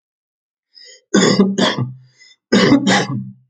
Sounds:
Cough